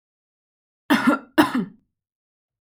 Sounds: Cough